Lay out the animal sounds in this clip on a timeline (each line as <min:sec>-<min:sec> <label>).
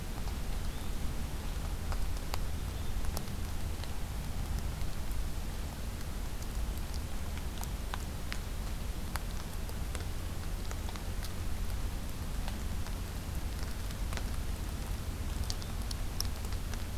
0:00.4-0:00.9 Yellow-bellied Flycatcher (Empidonax flaviventris)
0:15.3-0:15.8 Yellow-bellied Flycatcher (Empidonax flaviventris)